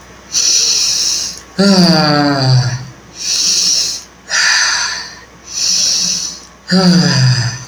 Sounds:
Sigh